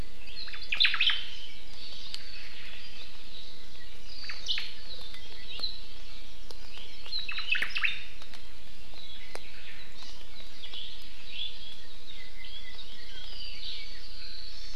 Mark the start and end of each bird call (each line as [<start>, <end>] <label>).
[0.46, 1.36] Omao (Myadestes obscurus)
[4.06, 5.86] Apapane (Himatione sanguinea)
[4.26, 4.76] Omao (Myadestes obscurus)
[6.96, 8.16] Omao (Myadestes obscurus)
[9.96, 10.16] Hawaii Amakihi (Chlorodrepanis virens)